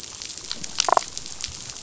{"label": "biophony, damselfish", "recorder": "SoundTrap 500"}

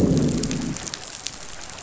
{"label": "biophony, growl", "recorder": "SoundTrap 500"}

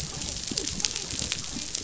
{"label": "biophony, dolphin", "recorder": "SoundTrap 500"}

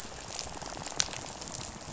{"label": "biophony, rattle", "recorder": "SoundTrap 500"}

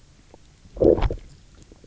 {"label": "biophony, low growl", "recorder": "SoundTrap 300"}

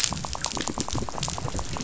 {"label": "biophony, rattle", "recorder": "SoundTrap 500"}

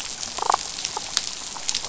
{"label": "biophony, damselfish", "recorder": "SoundTrap 500"}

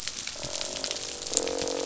{"label": "biophony, croak", "recorder": "SoundTrap 500"}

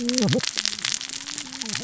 {"label": "biophony, cascading saw", "recorder": "SoundTrap 600 or HydroMoth"}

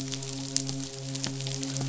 {"label": "biophony, midshipman", "recorder": "SoundTrap 500"}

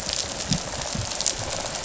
{"label": "biophony, rattle response", "recorder": "SoundTrap 500"}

